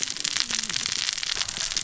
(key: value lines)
label: biophony, cascading saw
recorder: SoundTrap 600 or HydroMoth